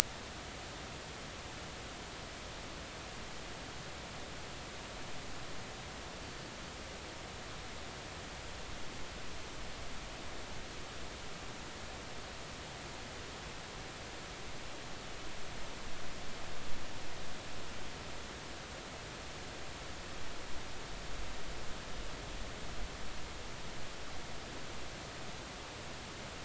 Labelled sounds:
6.2	6.5	humpback whale, 4.5 to 4.7 kHz

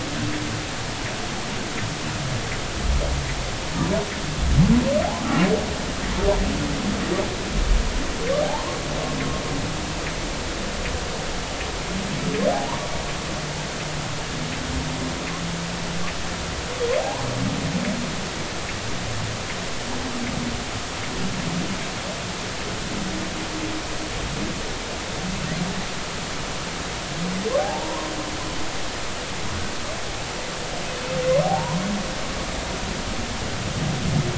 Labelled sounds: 8.4	8.8	humpback whale, 0.80 to 1.1 kHz
12.5	12.8	humpback whale, 0.80 to 1.2 kHz
17.0	17.3	humpback whale, 0.80 to 1.1 kHz
27.6	28.1	humpback whale, 0.80 to 1.1 kHz
31.4	31.8	humpback whale, 0.80 to 1.1 kHz

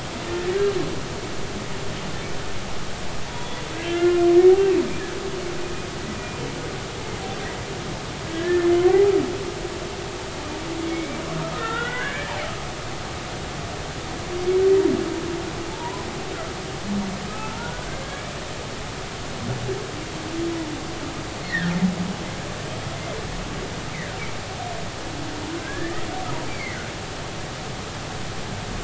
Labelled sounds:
0.2	0.5	humpback whale, 1.7 to 1.9 kHz
3.3	4.3	humpback whale, 1.3 to 3.5 kHz
4.7	5.2	humpback whale, 1.6 to 1.8 kHz
8.3	9.1	humpback whale, 0.80 to 1.8 kHz
10.9	11.2	humpback whale, 2.1 to 2.4 kHz
11.5	12.3	humpback whale, 1.2 to 3.0 kHz
15.7	16.0	humpback whale, 0.83 to 1.1 kHz
17.3	18.4	humpback whale, 1.2 to 2.4 kHz
21.4	21.7	humpback whale, 1.4 to 2.2 kHz
23.9	24.2	humpback whale, 1.3 to 2.3 kHz
25.6	26.8	humpback whale, 1.5 to 2.4 kHz

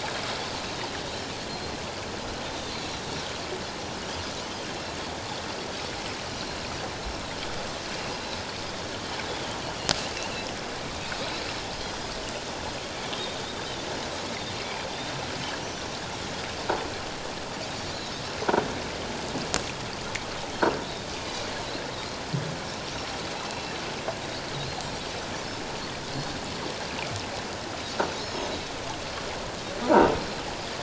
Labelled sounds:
1.5	1.7	Pacific white-sided dolphin, 4.1 to 4.2 kHz
14.6	14.9	Pacific white-sided dolphin, 2.1 to 2.5 kHz
18.0	18.2	Pacific white-sided dolphin, 5.0 to 5.4 kHz
23.4	23.7	Pacific white-sided dolphin, 2.6 to 4.1 kHz
28.2	28.5	Pacific white-sided dolphin, 5.1 to 6.7 kHz
29.8	30.1	croaking sound likely from a nearby submerged object, 0.84 to 1.0 kHz

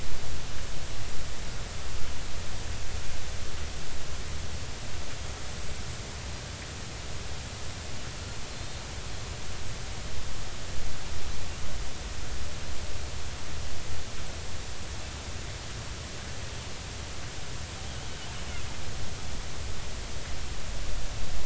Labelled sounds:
8.6	8.8	killer whale, Bigg's (transient), 3.5 to 3.7 kHz

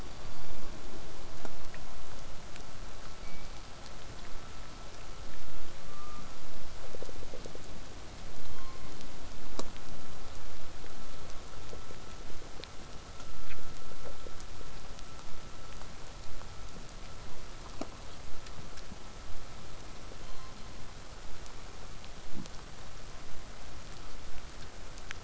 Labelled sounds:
0.0	0.9	killer whale, southern resident, call S16, 2.2 to 6.0 kHz
8.4	9.1	killer whale, southern resident, call S16, 0.89 to 4.4 kHz
14.2	19.2	vessel noise, 0 to 8.0 kHz
20.2	20.9	killer whale, southern resident, call S16, 0.89 to 4.4 kHz

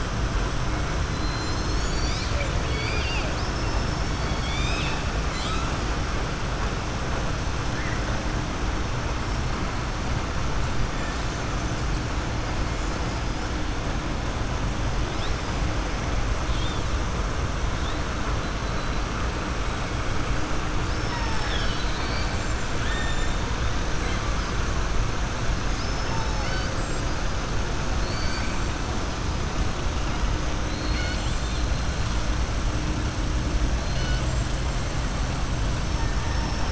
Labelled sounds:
2.6	4.2	killer whale, southern resident, 2.2 to 5.4 kHz
5.2	5.7	killer whale, southern resident, 1.2 to 5.0 kHz
20.8	22.4	killer whale, southern resident, 0.88 to 5.4 kHz
25.6	26.8	killer whale, southern resident, 0.87 to 5.4 kHz
27.9	28.5	killer whale, southern resident, 4.2 to 5.4 kHz
30.6	31.7	killer whale, southern resident, 1.5 to 5.2 kHz

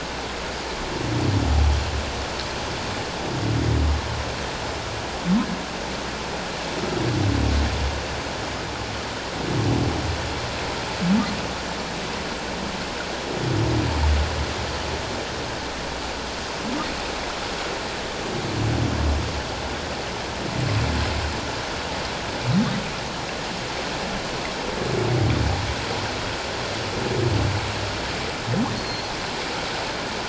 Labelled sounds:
28.8	29.1	humpback whale, 4.2 to 4.4 kHz

